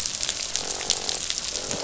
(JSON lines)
{"label": "biophony, croak", "recorder": "SoundTrap 500"}